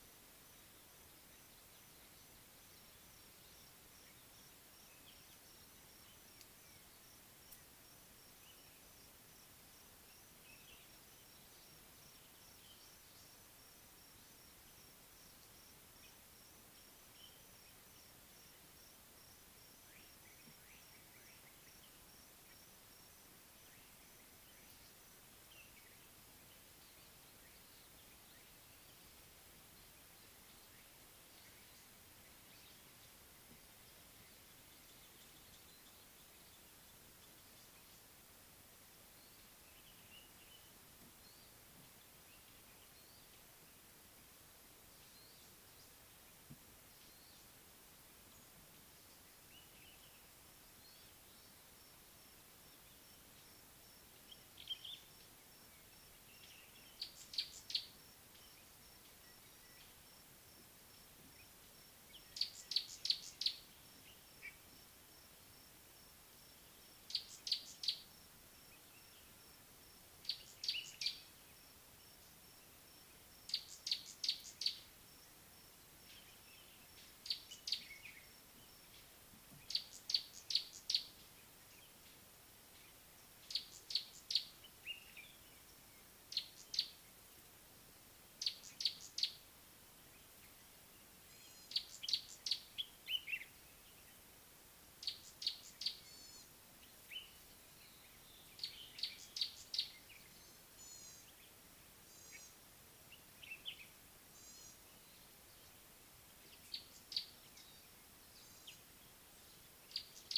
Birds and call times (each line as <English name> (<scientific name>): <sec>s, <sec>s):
Common Bulbul (Pycnonotus barbatus): 54.5s, 84.8s, 93.2s, 97.0s, 103.5s
Gray-backed Camaroptera (Camaroptera brevicaudata): 57.2s, 67.4s, 74.2s, 80.5s, 92.0s, 99.3s, 102.2s, 107.0s
White-bellied Go-away-bird (Corythaixoides leucogaster): 64.3s
Scarlet-chested Sunbird (Chalcomitra senegalensis): 108.6s